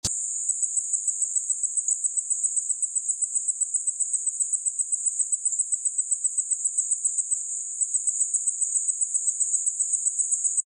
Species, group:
Allonemobius tinnulus
Orthoptera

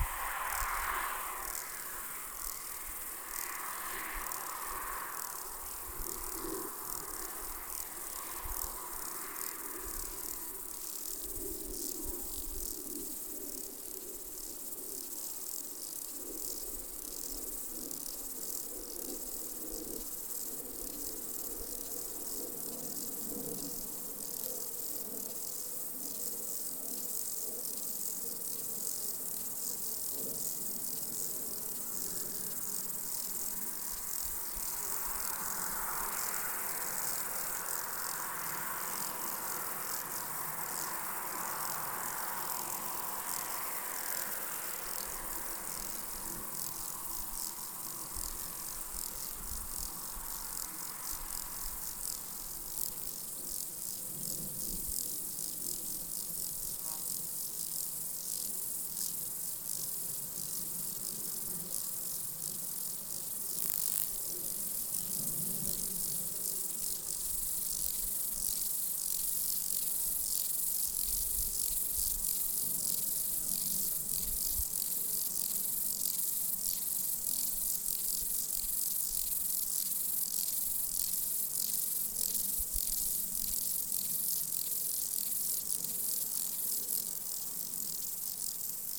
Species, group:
Stauroderus scalaris
Orthoptera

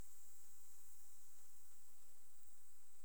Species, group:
Pholidoptera griseoaptera
Orthoptera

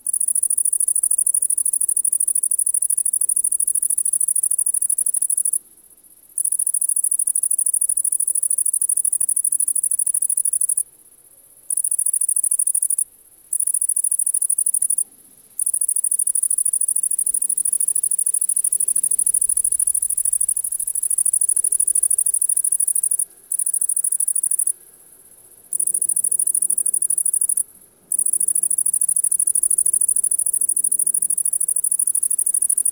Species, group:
Tettigonia viridissima
Orthoptera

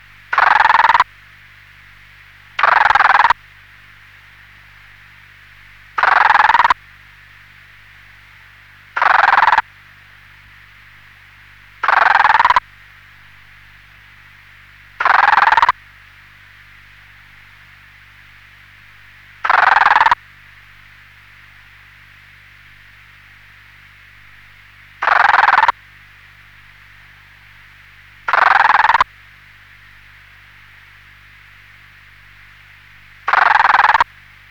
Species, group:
Rhacocleis germanica
Orthoptera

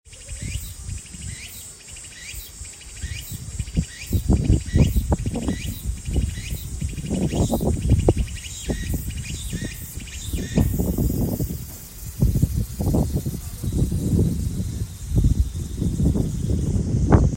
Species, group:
Meimuna opalifera
Cicadidae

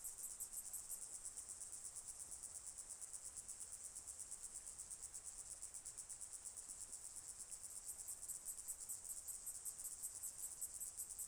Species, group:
Atrapsalta collina
Cicadidae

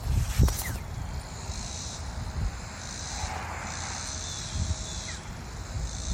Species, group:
Neotibicen robinsonianus
Cicadidae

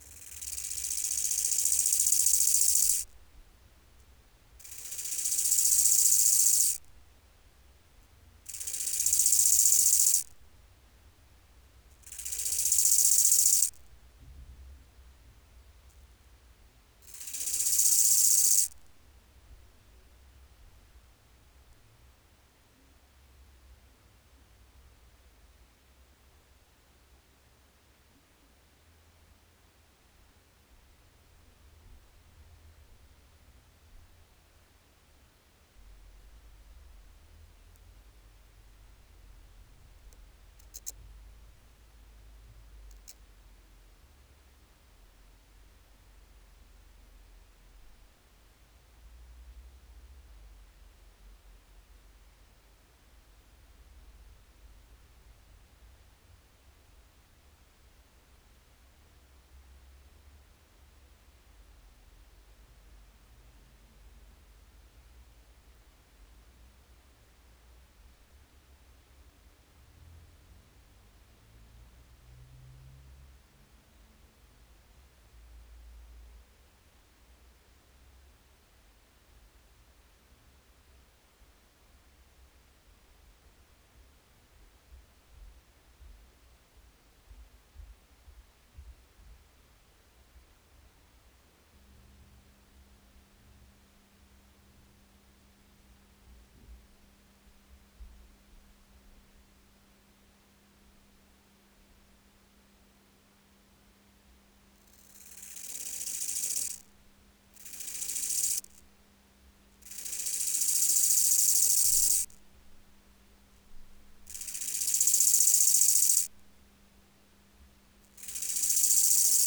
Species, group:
Chorthippus biguttulus
Orthoptera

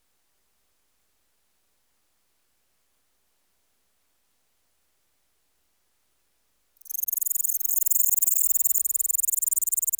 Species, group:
Pholidoptera littoralis
Orthoptera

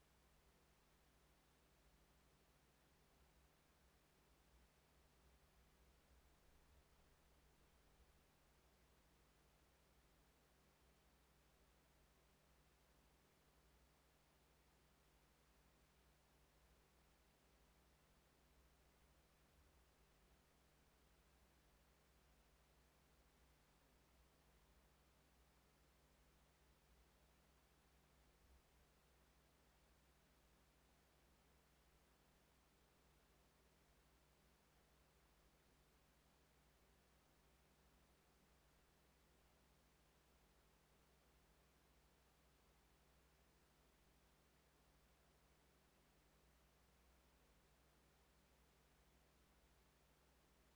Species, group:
Eumodicogryllus bordigalensis
Orthoptera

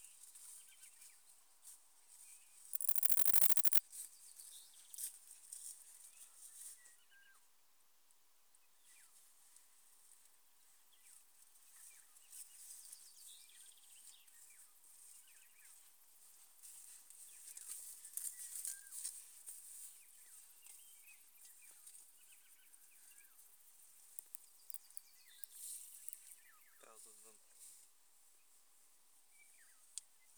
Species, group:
Bicolorana bicolor
Orthoptera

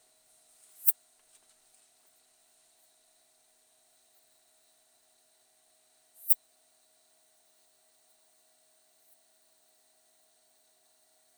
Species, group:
Poecilimon affinis
Orthoptera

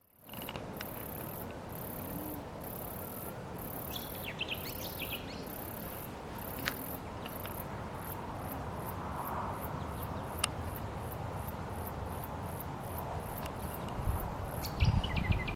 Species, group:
Telmapsalta hackeri
Cicadidae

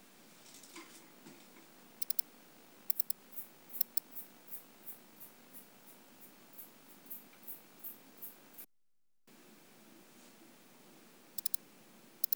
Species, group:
Barbitistes serricauda
Orthoptera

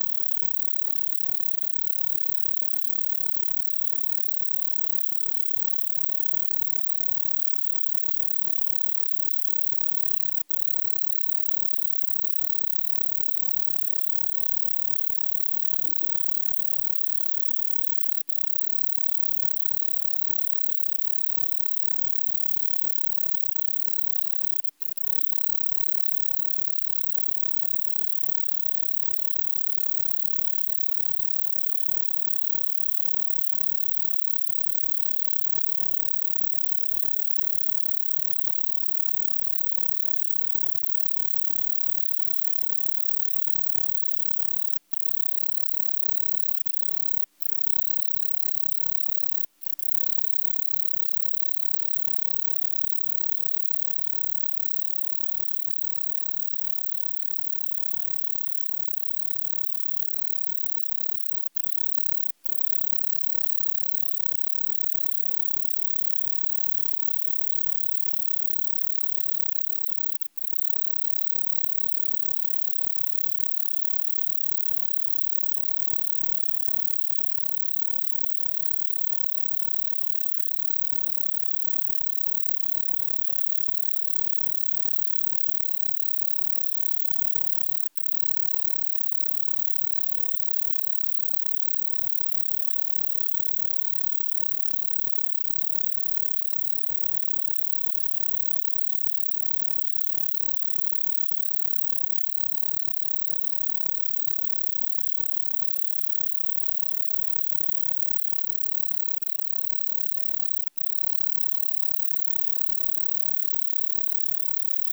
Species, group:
Anelytra tristellata
Orthoptera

